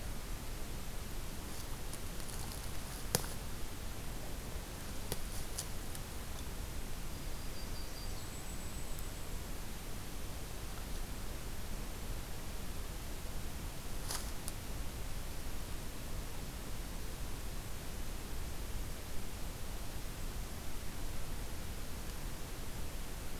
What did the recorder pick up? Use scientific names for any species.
Setophaga coronata, Setophaga striata